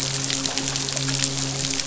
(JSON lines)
{"label": "biophony, midshipman", "recorder": "SoundTrap 500"}